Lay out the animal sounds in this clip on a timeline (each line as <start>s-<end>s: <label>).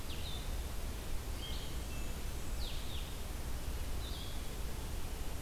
0.0s-5.4s: Blue-headed Vireo (Vireo solitarius)
1.4s-2.2s: Wood Thrush (Hylocichla mustelina)
1.5s-2.7s: Golden-crowned Kinglet (Regulus satrapa)